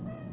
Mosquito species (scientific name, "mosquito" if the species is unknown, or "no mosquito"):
Aedes albopictus